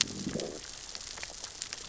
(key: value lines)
label: biophony, growl
recorder: SoundTrap 600 or HydroMoth